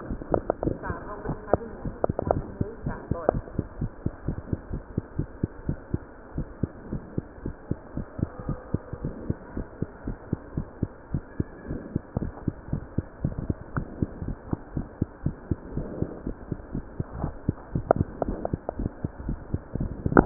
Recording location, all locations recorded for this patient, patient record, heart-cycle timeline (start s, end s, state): mitral valve (MV)
aortic valve (AV)+pulmonary valve (PV)+tricuspid valve (TV)+mitral valve (MV)
#Age: Child
#Sex: Male
#Height: 101.0 cm
#Weight: 16.8 kg
#Pregnancy status: False
#Murmur: Absent
#Murmur locations: nan
#Most audible location: nan
#Systolic murmur timing: nan
#Systolic murmur shape: nan
#Systolic murmur grading: nan
#Systolic murmur pitch: nan
#Systolic murmur quality: nan
#Diastolic murmur timing: nan
#Diastolic murmur shape: nan
#Diastolic murmur grading: nan
#Diastolic murmur pitch: nan
#Diastolic murmur quality: nan
#Outcome: Abnormal
#Campaign: 2015 screening campaign
0.00	3.66	unannotated
3.66	3.78	diastole
3.78	3.90	S1
3.90	4.02	systole
4.02	4.12	S2
4.12	4.24	diastole
4.24	4.36	S1
4.36	4.50	systole
4.50	4.58	S2
4.58	4.70	diastole
4.70	4.82	S1
4.82	4.94	systole
4.94	5.04	S2
5.04	5.18	diastole
5.18	5.28	S1
5.28	5.40	systole
5.40	5.50	S2
5.50	5.66	diastole
5.66	5.80	S1
5.80	6.04	systole
6.04	6.16	S2
6.16	6.36	diastole
6.36	6.48	S1
6.48	6.60	systole
6.60	6.70	S2
6.70	6.90	diastole
6.90	7.02	S1
7.02	7.14	systole
7.14	7.28	S2
7.28	7.44	diastole
7.44	7.54	S1
7.54	7.68	systole
7.68	7.78	S2
7.78	7.96	diastole
7.96	8.06	S1
8.06	8.18	systole
8.18	8.30	S2
8.30	8.44	diastole
8.44	8.58	S1
8.58	8.70	systole
8.70	8.82	S2
8.82	9.02	diastole
9.02	9.16	S1
9.16	9.28	systole
9.28	9.38	S2
9.38	9.54	diastole
9.54	9.66	S1
9.66	9.78	systole
9.78	9.88	S2
9.88	10.06	diastole
10.06	10.16	S1
10.16	10.28	systole
10.28	10.40	S2
10.40	10.56	diastole
10.56	10.66	S1
10.66	10.80	systole
10.80	10.90	S2
10.90	11.10	diastole
11.10	11.22	S1
11.22	11.36	systole
11.36	11.48	S2
11.48	11.68	diastole
11.68	11.82	S1
11.82	11.92	systole
11.92	12.00	S2
12.00	12.16	diastole
12.16	12.34	S1
12.34	12.46	systole
12.46	12.56	S2
12.56	12.70	diastole
12.70	12.84	S1
12.84	12.94	systole
12.94	13.06	S2
13.06	13.22	diastole
13.22	13.36	S1
13.36	13.46	systole
13.46	13.58	S2
13.58	13.76	diastole
13.76	13.90	S1
13.90	14.00	systole
14.00	14.10	S2
14.10	14.22	diastole
14.22	14.36	S1
14.36	14.48	systole
14.48	14.60	S2
14.60	14.74	diastole
14.74	14.88	S1
14.88	15.00	systole
15.00	15.10	S2
15.10	15.24	diastole
15.24	15.38	S1
15.38	15.50	systole
15.50	15.60	S2
15.60	15.74	diastole
15.74	15.92	S1
15.92	16.00	systole
16.00	16.10	S2
16.10	16.24	diastole
16.24	16.36	S1
16.36	16.48	systole
16.48	16.58	S2
16.58	16.74	diastole
16.74	16.86	S1
16.86	16.98	systole
16.98	17.08	S2
17.08	17.22	diastole
17.22	17.36	S1
17.36	17.46	systole
17.46	20.26	unannotated